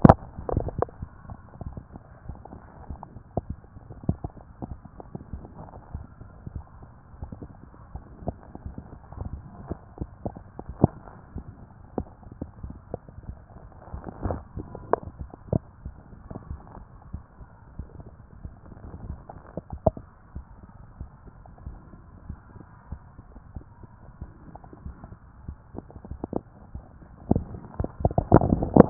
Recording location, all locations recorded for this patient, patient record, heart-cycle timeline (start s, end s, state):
mitral valve (MV)
aortic valve (AV)+pulmonary valve (PV)+tricuspid valve (TV)+mitral valve (MV)
#Age: Child
#Sex: Female
#Height: nan
#Weight: nan
#Pregnancy status: False
#Murmur: Absent
#Murmur locations: nan
#Most audible location: nan
#Systolic murmur timing: nan
#Systolic murmur shape: nan
#Systolic murmur grading: nan
#Systolic murmur pitch: nan
#Systolic murmur quality: nan
#Diastolic murmur timing: nan
#Diastolic murmur shape: nan
#Diastolic murmur grading: nan
#Diastolic murmur pitch: nan
#Diastolic murmur quality: nan
#Outcome: Abnormal
#Campaign: 2014 screening campaign
0.00	20.34	unannotated
20.34	20.44	S1
20.44	20.60	systole
20.60	20.68	S2
20.68	20.98	diastole
20.98	21.10	S1
21.10	21.26	systole
21.26	21.34	S2
21.34	21.66	diastole
21.66	21.78	S1
21.78	21.94	systole
21.94	22.04	S2
22.04	22.28	diastole
22.28	22.38	S1
22.38	22.56	systole
22.56	22.66	S2
22.66	22.90	diastole
22.90	23.00	S1
23.00	23.20	systole
23.20	23.28	S2
23.28	23.54	diastole
23.54	23.64	S1
23.64	23.82	systole
23.82	23.90	S2
23.90	24.20	diastole
24.20	24.30	S1
24.30	24.46	systole
24.46	24.56	S2
24.56	24.84	diastole
24.84	24.96	S1
24.96	25.12	systole
25.12	25.20	S2
25.20	25.46	diastole
25.46	25.56	S1
25.56	25.74	systole
25.74	25.82	S2
25.82	26.08	diastole
26.08	28.90	unannotated